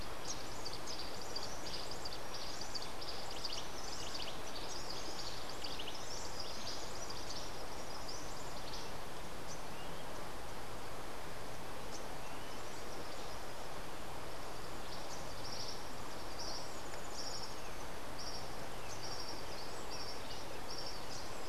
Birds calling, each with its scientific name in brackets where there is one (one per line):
Tropical Kingbird (Tyrannus melancholicus)
Cabanis's Wren (Cantorchilus modestus)